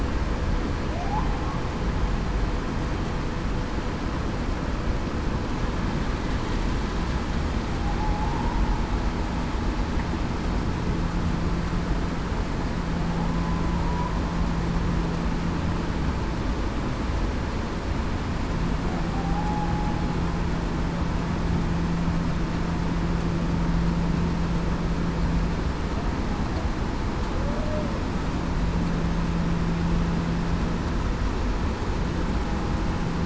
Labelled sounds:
0.9	1.3	humpback whale, 0.58 to 1.1 kHz
8.0	8.6	humpback whale, 0.82 to 1.0 kHz
19.1	19.7	humpback whale, 0.75 to 0.87 kHz
27.4	27.9	humpback whale, 0.49 to 0.68 kHz

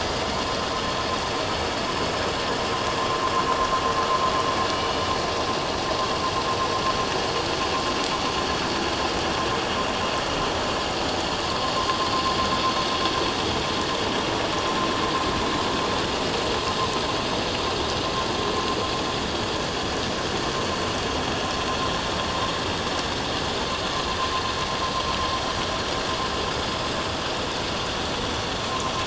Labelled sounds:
4.7	5.1	killer whale, 2.9 to 3.0 kHz

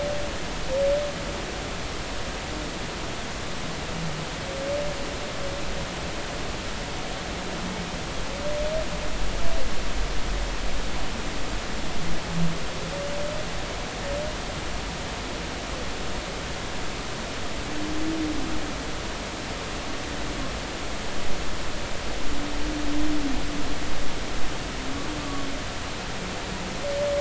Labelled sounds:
25.2	25.5	humpback whale, 1.1 to 1.2 kHz

